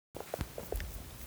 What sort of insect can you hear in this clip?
orthopteran